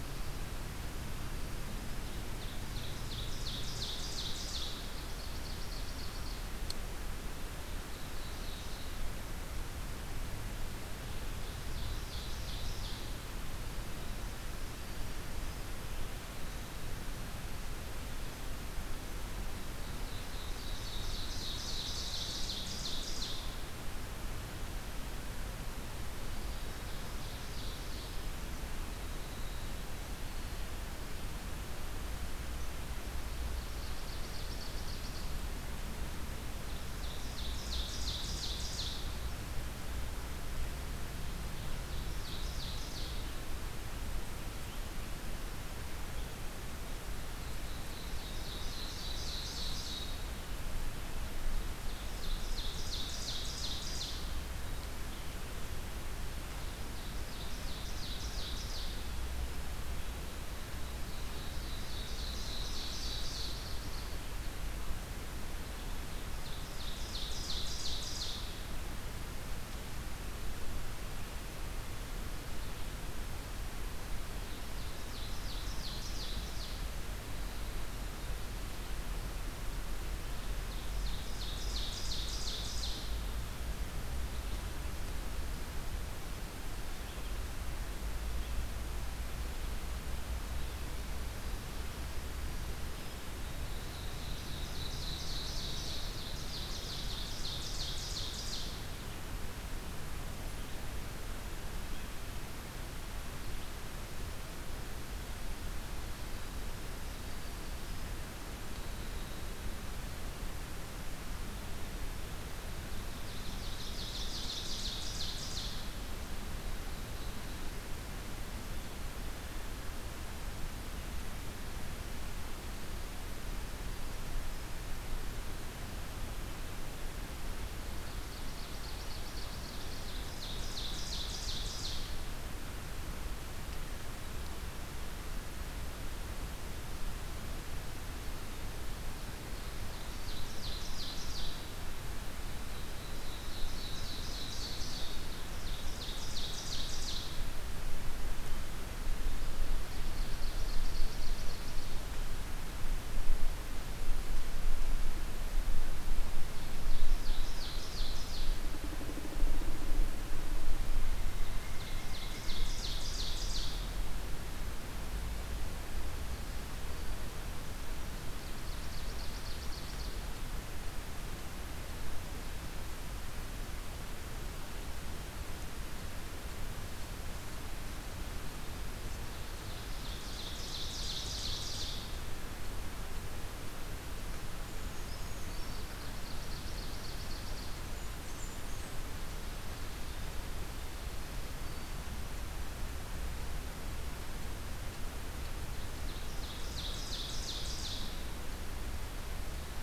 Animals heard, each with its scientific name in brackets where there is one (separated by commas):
Brown Creeper (Certhia americana), Ovenbird (Seiurus aurocapilla), Winter Wren (Troglodytes hiemalis)